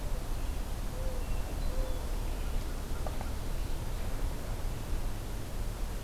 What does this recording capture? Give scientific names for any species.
Zenaida macroura, Catharus guttatus